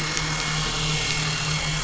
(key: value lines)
label: anthrophony, boat engine
recorder: SoundTrap 500